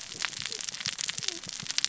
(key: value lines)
label: biophony, cascading saw
recorder: SoundTrap 600 or HydroMoth